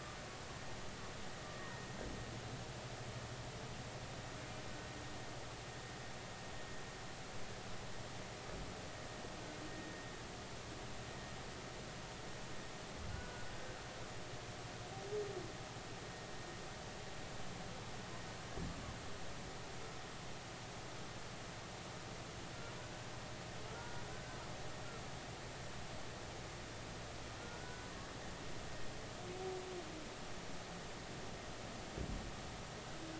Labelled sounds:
1.6	1.8	humpback whale, 1.8 to 1.9 kHz
13.1	13.5	humpback whale, 1.4 to 1.6 kHz
22.8	23.1	humpback whale, 1.4 to 1.6 kHz
23.7	24.4	humpback whale, 1.3 to 1.6 kHz
27.6	27.9	humpback whale, 1.4 to 1.5 kHz

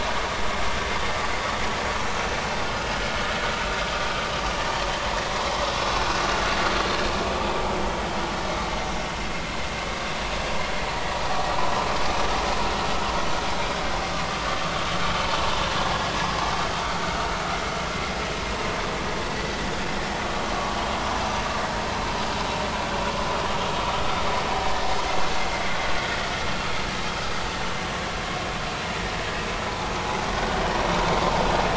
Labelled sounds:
29.7	29.9	vessel noise, 0.80 to 1.0 kHz

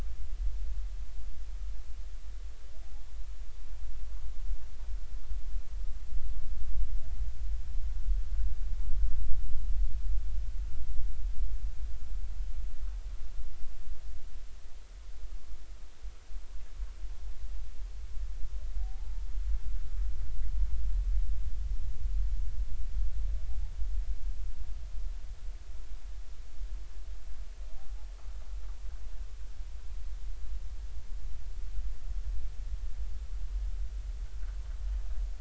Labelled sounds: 18.8	19.2	humpback whale, 0.80 to 0.93 kHz

